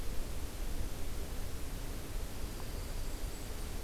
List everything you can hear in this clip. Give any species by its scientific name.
Junco hyemalis, Setophaga fusca